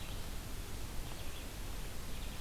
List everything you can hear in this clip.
Red-eyed Vireo